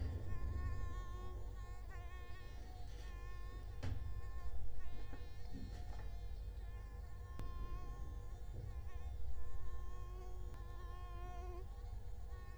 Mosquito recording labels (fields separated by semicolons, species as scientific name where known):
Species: Culex quinquefasciatus; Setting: cup